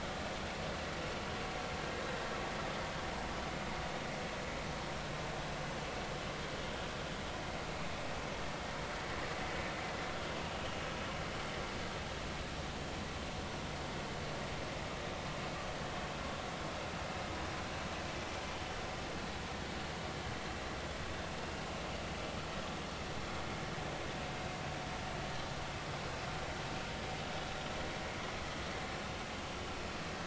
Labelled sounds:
10.6	10.8	vessel noise, 2.8 to 3.1 kHz

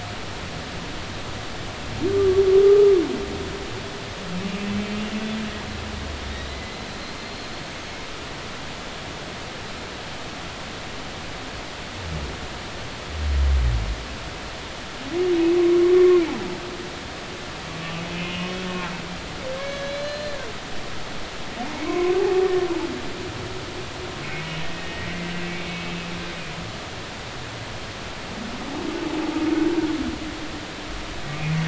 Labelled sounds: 2.1	2.9	humpback whale, 1.1 to 1.3 kHz
6.3	8.0	humpback whale, 2.0 to 6.5 kHz
15.9	16.2	humpback whale, 1.0 to 1.2 kHz
18.1	18.6	humpback whale, 2.4 to 3.0 kHz
19.5	20.5	humpback whale, 1.5 to 4.2 kHz
21.8	22.1	humpback whale, 0.99 to 2.4 kHz
24.6	25.3	humpback whale, 1.8 to 2.1 kHz

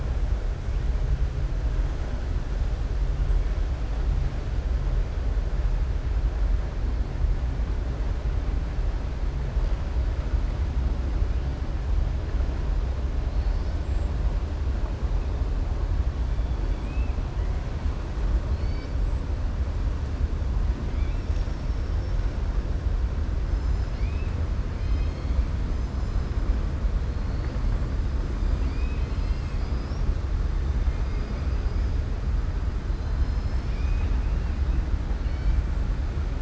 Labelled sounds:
32.9	34.5	killer whale, southern resident, 2.0 to 6.2 kHz

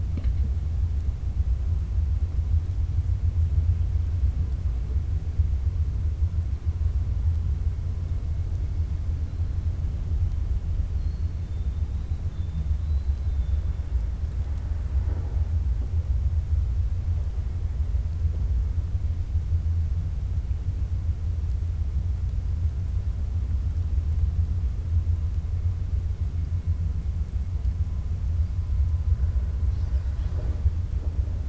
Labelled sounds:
12.7	13.6	killer whale, 3.4 to 4.9 kHz

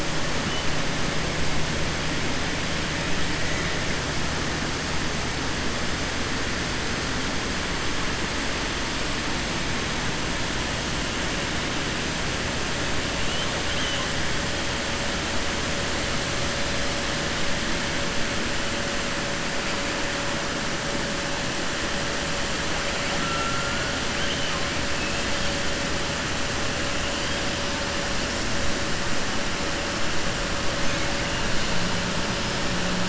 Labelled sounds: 13.6	14.0	killer whale, 2.0 to 4.0 kHz

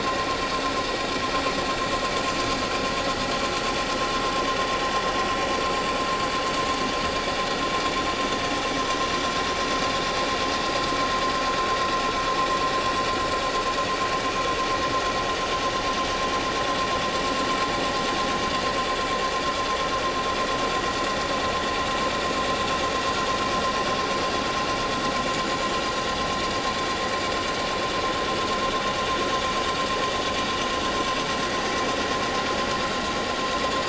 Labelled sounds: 25.2	25.7	vessel noise, 6.8 to 7.1 kHz

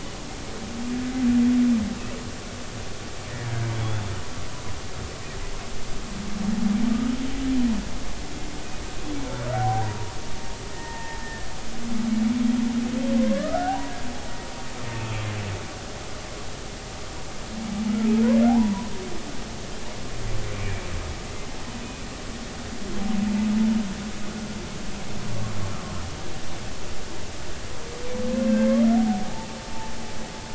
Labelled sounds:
3.7	4.1	humpback whale, 3.3 to 3.6 kHz
9.5	10.1	humpback whale, 0.80 to 0.99 kHz
10.7	11.5	humpback whale, 0.86 to 1.9 kHz
13.3	13.9	humpback whale, 0.80 to 1.7 kHz
18.5	18.9	humpback whale, 0.80 to 1.1 kHz
25.7	26.0	humpback whale, 1.0 to 1.4 kHz
28.5	29.5	humpback whale, 0.80 to 1.7 kHz

